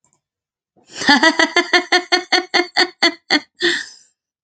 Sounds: Laughter